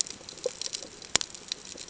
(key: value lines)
label: ambient
recorder: HydroMoth